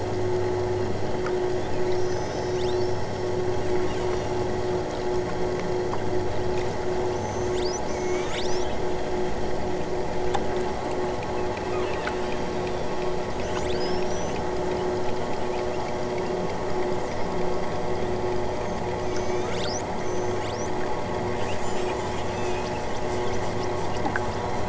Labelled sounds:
1.9	3.0	killer whale, southern Alaska resident, 1.9 to 8.0 kHz
3.8	4.5	killer whale, southern Alaska resident, 2.3 to 7.8 kHz
7.1	8.7	killer whale, southern Alaska resident, 1.9 to 8.0 kHz
11.8	14.4	killer whale, southern Alaska resident, 2.2 to 8.0 kHz
19.0	20.8	killer whale, southern Alaska resident, 2.2 to 8.0 kHz

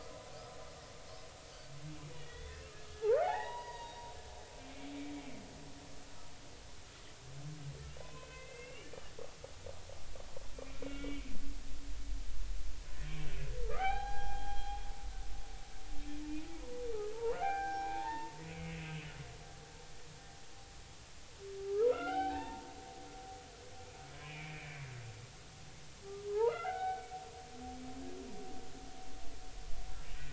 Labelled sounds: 2.2	4.0	humpback whale, 0.80 to 4.9 kHz
4.6	4.9	humpback whale, 2.1 to 2.5 kHz
8.0	9.0	humpback whale, 0.96 to 3.0 kHz
10.5	11.3	humpback whale, 2.2 to 3.5 kHz
13.7	14.9	humpback whale, 0.80 to 4.1 kHz
17.1	18.3	humpback whale, 0.80 to 5.6 kHz
18.7	19.1	humpback whale, 2.5 to 2.7 kHz
21.9	22.7	humpback whale, 0.80 to 3.1 kHz
24.2	24.8	humpback whale, 2.1 to 2.6 kHz
26.3	27.1	humpback whale, 0.80 to 2.9 kHz

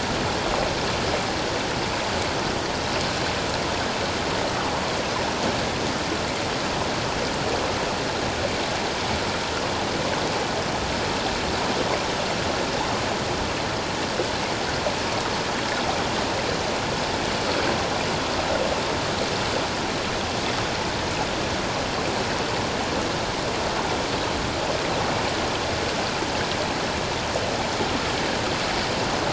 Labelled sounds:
4.6	4.8	water noise, 0.78 to 1.2 kHz

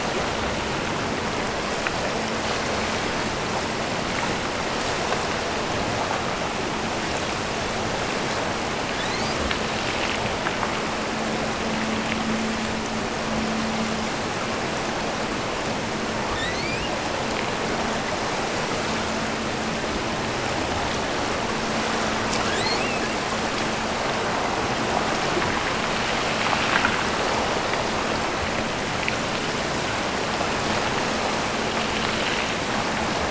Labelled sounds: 8.8	9.6	killer whale, offshore, 1.4 to 8.0 kHz
16.2	17.0	killer whale, offshore, 0.91 to 8.0 kHz
22.4	23.1	killer whale, offshore, 1.3 to 8.0 kHz

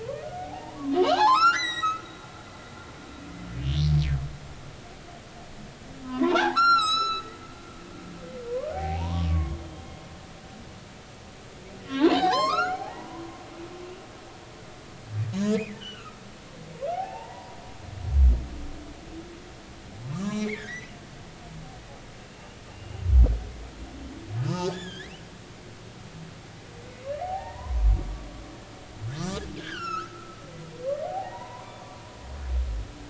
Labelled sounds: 0.0	2.0	humpback whale, 0.80 to 8.0 kHz
6.0	7.5	humpback whale, 0.80 to 8.0 kHz
8.5	9.6	humpback whale, 0.80 to 2.3 kHz
11.8	13.2	humpback whale, 0.80 to 7.6 kHz
15.4	16.2	humpback whale, 1.1 to 7.1 kHz
16.9	17.6	humpback whale, 0.80 to 2.9 kHz
20.1	20.9	humpback whale, 0.99 to 5.8 kHz
22.7	23.0	humpback whale, 2.6 to 2.9 kHz
24.4	25.1	humpback whale, 0.83 to 7.2 kHz
27.2	27.9	humpback whale, 0.80 to 2.0 kHz
29.6	30.4	humpback whale, 1.2 to 6.9 kHz
31.0	31.8	humpback whale, 0.80 to 2.1 kHz

